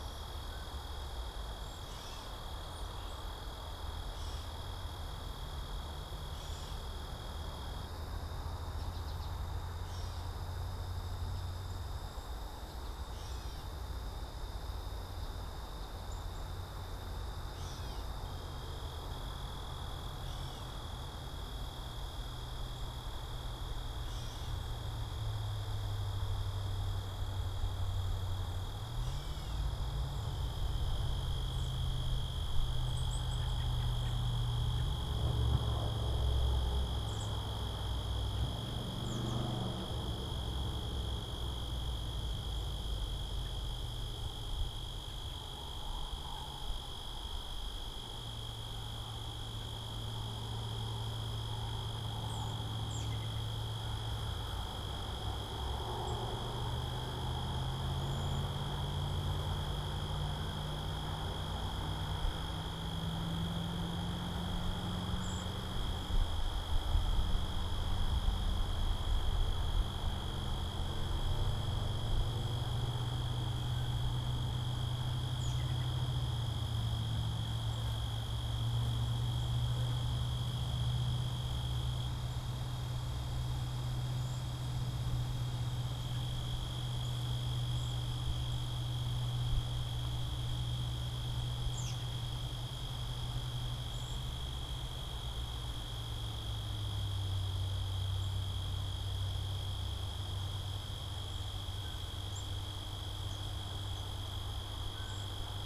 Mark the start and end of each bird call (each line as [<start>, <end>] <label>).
[0.00, 29.94] Gray Catbird (Dumetella carolinensis)
[8.44, 9.44] American Goldfinch (Spinus tristis)
[11.14, 13.04] American Goldfinch (Spinus tristis)
[32.64, 33.54] Black-capped Chickadee (Poecile atricapillus)
[33.24, 35.34] American Robin (Turdus migratorius)
[36.84, 39.64] American Robin (Turdus migratorius)
[52.14, 53.34] American Robin (Turdus migratorius)
[57.84, 58.64] Cedar Waxwing (Bombycilla cedrorum)
[65.04, 65.64] Cedar Waxwing (Bombycilla cedrorum)
[75.14, 76.34] American Robin (Turdus migratorius)
[84.04, 84.54] Cedar Waxwing (Bombycilla cedrorum)
[86.74, 88.64] Cedar Waxwing (Bombycilla cedrorum)
[91.54, 92.34] American Robin (Turdus migratorius)
[93.84, 94.44] Cedar Waxwing (Bombycilla cedrorum)
[102.14, 102.74] Black-capped Chickadee (Poecile atricapillus)
[104.84, 105.34] Blue Jay (Cyanocitta cristata)
[104.94, 105.54] Cedar Waxwing (Bombycilla cedrorum)